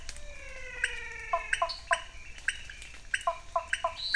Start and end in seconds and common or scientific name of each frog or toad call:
0.0	4.1	pointedbelly frog
0.2	1.7	menwig frog
1.3	2.2	Cuyaba dwarf frog
1.7	1.8	dwarf tree frog
3.3	4.1	Cuyaba dwarf frog